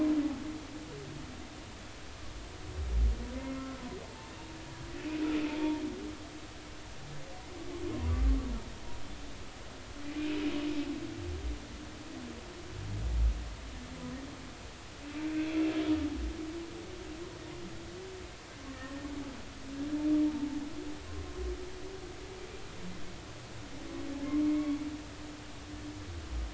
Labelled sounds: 3.4	4.3	humpback whale, 0.83 to 2.2 kHz
18.7	19.0	humpback whale, 1.8 to 2.0 kHz
24.4	24.8	humpback whale, 1.0 to 2.4 kHz

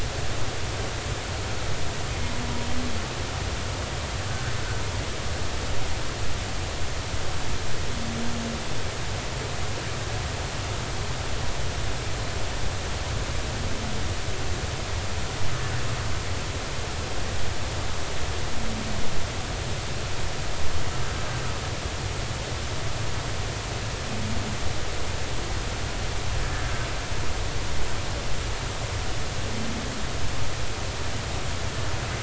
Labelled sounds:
4.3	4.5	humpback whale, 1.4 to 1.6 kHz

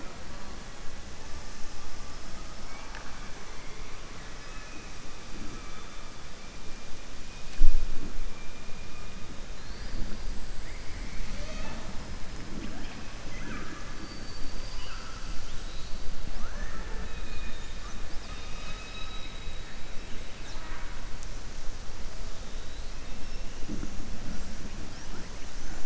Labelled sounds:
2.6	3.3	killer whale, southern resident, 0.71 to 3.0 kHz
18.1	19.6	killer whale, southern resident, 1.3 to 5.2 kHz

